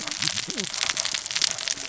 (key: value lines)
label: biophony, cascading saw
recorder: SoundTrap 600 or HydroMoth